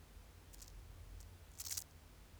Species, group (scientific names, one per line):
Chorthippus biguttulus
Orthoptera